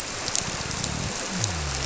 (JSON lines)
{"label": "biophony", "recorder": "SoundTrap 300"}